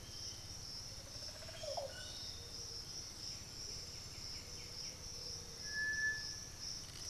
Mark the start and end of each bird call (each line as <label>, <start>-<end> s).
Black-billed Thrush (Turdus ignobilis), 0.0-7.1 s
Piratic Flycatcher (Legatus leucophaius), 0.0-7.1 s
Olive Oropendola (Psarocolius bifasciatus), 0.6-2.6 s
White-winged Becard (Pachyramphus polychopterus), 2.9-5.0 s